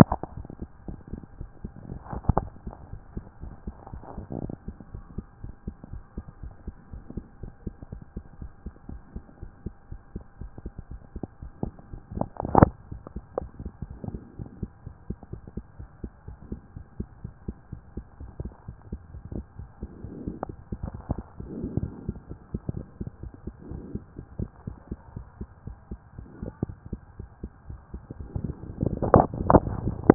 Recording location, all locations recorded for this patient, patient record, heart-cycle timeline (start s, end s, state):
mitral valve (MV)
aortic valve (AV)+pulmonary valve (PV)+tricuspid valve (TV)+mitral valve (MV)
#Age: Child
#Sex: Female
#Height: 128.0 cm
#Weight: 34.3 kg
#Pregnancy status: False
#Murmur: Absent
#Murmur locations: nan
#Most audible location: nan
#Systolic murmur timing: nan
#Systolic murmur shape: nan
#Systolic murmur grading: nan
#Systolic murmur pitch: nan
#Systolic murmur quality: nan
#Diastolic murmur timing: nan
#Diastolic murmur shape: nan
#Diastolic murmur grading: nan
#Diastolic murmur pitch: nan
#Diastolic murmur quality: nan
#Outcome: Normal
#Campaign: 2014 screening campaign
0.00	0.28	unannotated
0.28	0.36	diastole
0.36	0.46	S1
0.46	0.60	systole
0.60	0.66	S2
0.66	0.88	diastole
0.88	0.98	S1
0.98	1.12	systole
1.12	1.22	S2
1.22	1.38	diastole
1.38	1.50	S1
1.50	1.62	systole
1.62	1.72	S2
1.72	1.92	diastole
1.92	2.00	S1
2.00	2.12	systole
2.12	2.20	S2
2.20	2.38	diastole
2.38	2.50	S1
2.50	2.66	systole
2.66	2.76	S2
2.76	2.92	diastole
2.92	3.02	S1
3.02	3.14	systole
3.14	3.24	S2
3.24	3.42	diastole
3.42	3.54	S1
3.54	3.66	systole
3.66	3.76	S2
3.76	3.94	diastole
3.94	4.02	S1
4.02	4.16	systole
4.16	4.24	S2
4.24	4.42	diastole
4.42	4.52	S1
4.52	4.66	systole
4.66	4.76	S2
4.76	4.94	diastole
4.94	5.04	S1
5.04	5.16	systole
5.16	5.26	S2
5.26	5.42	diastole
5.42	5.54	S1
5.54	5.66	systole
5.66	5.74	S2
5.74	5.92	diastole
5.92	6.02	S1
6.02	6.16	systole
6.16	6.24	S2
6.24	6.42	diastole
6.42	6.54	S1
6.54	6.66	systole
6.66	6.74	S2
6.74	6.92	diastole
6.92	7.02	S1
7.02	7.16	systole
7.16	7.24	S2
7.24	7.42	diastole
7.42	7.52	S1
7.52	7.66	systole
7.66	7.74	S2
7.74	7.92	diastole
7.92	8.02	S1
8.02	8.16	systole
8.16	8.24	S2
8.24	8.40	diastole
8.40	8.50	S1
8.50	8.64	systole
8.64	8.72	S2
8.72	8.90	diastole
8.90	9.00	S1
9.00	9.14	systole
9.14	9.24	S2
9.24	9.42	diastole
9.42	9.52	S1
9.52	9.64	systole
9.64	9.74	S2
9.74	9.90	diastole
9.90	10.00	S1
10.00	10.14	systole
10.14	10.24	S2
10.24	10.40	diastole
10.40	10.50	S1
10.50	10.64	systole
10.64	10.72	S2
10.72	10.90	diastole
10.90	11.00	S1
11.00	11.16	systole
11.16	11.26	S2
11.26	11.42	diastole
11.42	11.52	S1
11.52	11.62	systole
11.62	11.74	S2
11.74	11.94	diastole
11.94	30.14	unannotated